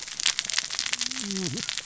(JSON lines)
{"label": "biophony, cascading saw", "recorder": "SoundTrap 600 or HydroMoth"}